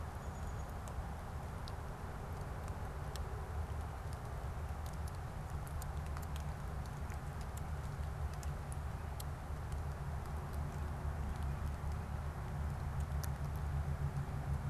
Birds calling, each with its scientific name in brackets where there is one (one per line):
Black-capped Chickadee (Poecile atricapillus)